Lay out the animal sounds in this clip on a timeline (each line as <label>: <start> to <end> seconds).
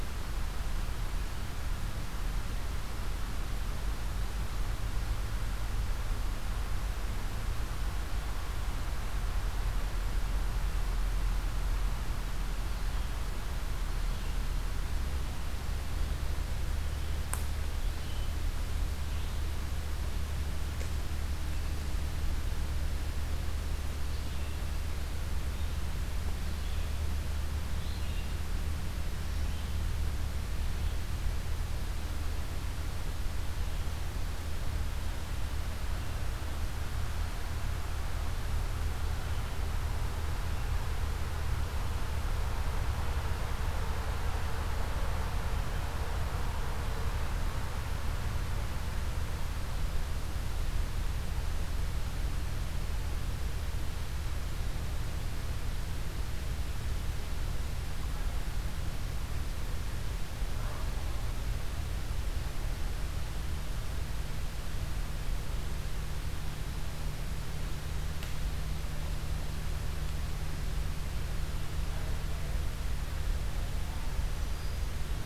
Red-eyed Vireo (Vireo olivaceus): 17.6 to 19.7 seconds
Red-eyed Vireo (Vireo olivaceus): 25.1 to 31.5 seconds
Black-throated Green Warbler (Setophaga virens): 74.0 to 75.1 seconds